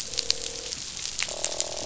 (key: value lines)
label: biophony, croak
recorder: SoundTrap 500